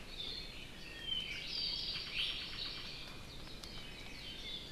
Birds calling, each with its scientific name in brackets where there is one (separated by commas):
Hawaii Amakihi (Chlorodrepanis virens), Apapane (Himatione sanguinea)